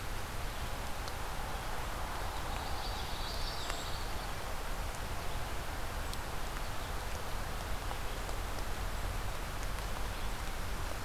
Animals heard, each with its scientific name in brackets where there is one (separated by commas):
Common Yellowthroat (Geothlypis trichas), Brown Creeper (Certhia americana)